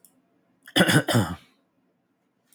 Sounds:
Throat clearing